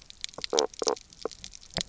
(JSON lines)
{"label": "biophony, knock croak", "recorder": "SoundTrap 300"}